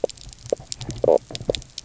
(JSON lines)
{"label": "biophony, knock croak", "recorder": "SoundTrap 300"}